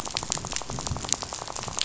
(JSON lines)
{"label": "biophony, rattle", "recorder": "SoundTrap 500"}